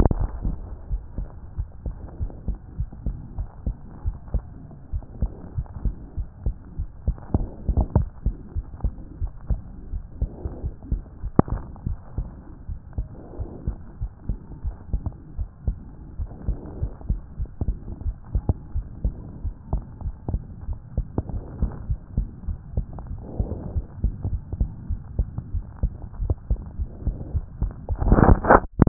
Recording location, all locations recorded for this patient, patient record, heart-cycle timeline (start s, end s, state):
aortic valve (AV)
aortic valve (AV)+pulmonary valve (PV)+tricuspid valve (TV)+mitral valve (MV)
#Age: Child
#Sex: Female
#Height: 136.0 cm
#Weight: 18.7 kg
#Pregnancy status: False
#Murmur: Absent
#Murmur locations: nan
#Most audible location: nan
#Systolic murmur timing: nan
#Systolic murmur shape: nan
#Systolic murmur grading: nan
#Systolic murmur pitch: nan
#Systolic murmur quality: nan
#Diastolic murmur timing: nan
#Diastolic murmur shape: nan
#Diastolic murmur grading: nan
#Diastolic murmur pitch: nan
#Diastolic murmur quality: nan
#Outcome: Abnormal
#Campaign: 2014 screening campaign
0.00	0.74	unannotated
0.74	0.90	diastole
0.90	1.02	S1
1.02	1.18	systole
1.18	1.28	S2
1.28	1.58	diastole
1.58	1.68	S1
1.68	1.86	systole
1.86	1.94	S2
1.94	2.20	diastole
2.20	2.32	S1
2.32	2.48	systole
2.48	2.58	S2
2.58	2.78	diastole
2.78	2.88	S1
2.88	3.06	systole
3.06	3.16	S2
3.16	3.38	diastole
3.38	3.48	S1
3.48	3.66	systole
3.66	3.74	S2
3.74	4.04	diastole
4.04	4.16	S1
4.16	4.32	systole
4.32	4.44	S2
4.44	4.92	diastole
4.92	5.04	S1
5.04	5.20	systole
5.20	5.30	S2
5.30	5.56	diastole
5.56	5.66	S1
5.66	5.84	systole
5.84	5.94	S2
5.94	6.18	diastole
6.18	6.28	S1
6.28	6.44	systole
6.44	6.56	S2
6.56	6.78	diastole
6.78	6.88	S1
6.88	7.06	systole
7.06	7.16	S2
7.16	7.34	diastole
7.34	7.48	S1
7.48	7.68	systole
7.68	7.78	S2
7.78	7.94	diastole
7.94	8.08	S1
8.08	8.24	systole
8.24	8.36	S2
8.36	8.56	diastole
8.56	8.66	S1
8.66	8.82	systole
8.82	8.90	S2
8.90	9.20	diastole
9.20	9.32	S1
9.32	9.48	systole
9.48	9.60	S2
9.60	9.92	diastole
9.92	10.02	S1
10.02	10.20	systole
10.20	10.30	S2
10.30	10.64	diastole
10.64	10.74	S1
10.74	10.90	systole
10.90	11.02	S2
11.02	11.26	diastole
11.26	11.32	S1
11.32	11.50	systole
11.50	11.58	S2
11.58	11.86	diastole
11.86	11.98	S1
11.98	12.16	systole
12.16	12.28	S2
12.28	12.68	diastole
12.68	12.78	S1
12.78	12.96	systole
12.96	13.08	S2
13.08	13.38	diastole
13.38	13.50	S1
13.50	13.66	systole
13.66	13.76	S2
13.76	14.00	diastole
14.00	14.10	S1
14.10	14.28	systole
14.28	14.38	S2
14.38	14.64	diastole
14.64	14.76	S1
14.76	14.92	systole
14.92	15.02	S2
15.02	15.38	diastole
15.38	15.48	S1
15.48	15.66	systole
15.66	15.78	S2
15.78	16.18	diastole
16.18	16.30	S1
16.30	16.46	systole
16.46	16.56	S2
16.56	16.80	diastole
16.80	16.92	S1
16.92	17.08	systole
17.08	17.20	S2
17.20	17.40	diastole
17.40	17.48	S1
17.48	17.66	systole
17.66	17.76	S2
17.76	18.04	diastole
18.04	18.16	S1
18.16	18.34	systole
18.34	18.42	S2
18.42	18.74	diastole
18.74	18.86	S1
18.86	19.04	systole
19.04	19.14	S2
19.14	19.44	diastole
19.44	19.54	S1
19.54	19.72	systole
19.72	19.82	S2
19.82	20.04	diastole
20.04	20.14	S1
20.14	20.30	systole
20.30	20.42	S2
20.42	20.68	diastole
20.68	28.88	unannotated